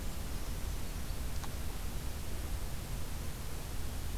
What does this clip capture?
Brown Creeper